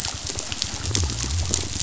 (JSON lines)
{"label": "biophony", "recorder": "SoundTrap 500"}